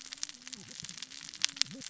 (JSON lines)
{"label": "biophony, cascading saw", "recorder": "SoundTrap 600 or HydroMoth"}